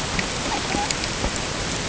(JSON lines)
{"label": "ambient", "recorder": "HydroMoth"}